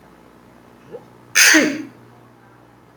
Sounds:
Sneeze